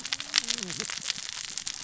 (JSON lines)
{"label": "biophony, cascading saw", "recorder": "SoundTrap 600 or HydroMoth"}